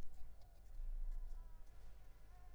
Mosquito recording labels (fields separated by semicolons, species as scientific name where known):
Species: Anopheles squamosus; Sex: female; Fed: unfed; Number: one; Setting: cup